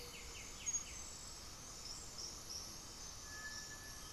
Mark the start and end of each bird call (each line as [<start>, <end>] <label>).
[0.00, 1.34] White-winged Becard (Pachyramphus polychopterus)
[0.00, 4.12] Cinereous Tinamou (Crypturellus cinereus)
[0.00, 4.12] Gray-fronted Dove (Leptotila rufaxilla)
[0.00, 4.12] unidentified bird
[3.04, 4.12] Undulated Tinamou (Crypturellus undulatus)